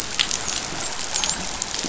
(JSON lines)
{"label": "biophony, dolphin", "recorder": "SoundTrap 500"}